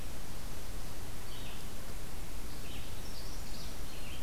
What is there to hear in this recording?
Red-eyed Vireo, Magnolia Warbler